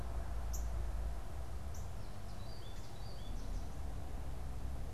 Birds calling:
Northern Cardinal (Cardinalis cardinalis), American Goldfinch (Spinus tristis)

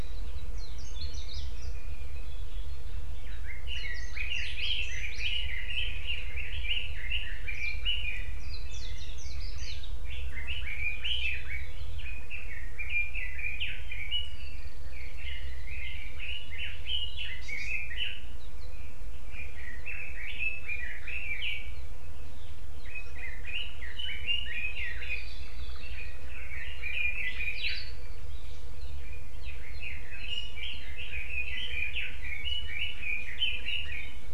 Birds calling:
Hawaii Amakihi (Chlorodrepanis virens), Red-billed Leiothrix (Leiothrix lutea), Hawaii Creeper (Loxops mana)

